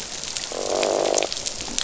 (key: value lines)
label: biophony, croak
recorder: SoundTrap 500